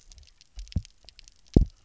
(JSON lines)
{"label": "biophony, double pulse", "recorder": "SoundTrap 300"}